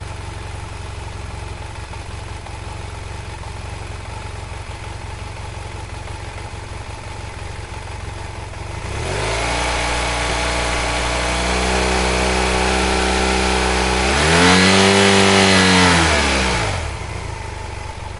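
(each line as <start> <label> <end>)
0.0 An engine is running idle continuously. 8.8
8.9 An engine revving continuously to medium rpm. 14.1
14.2 An engine is running at high RPM. 16.8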